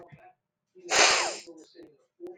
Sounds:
Sniff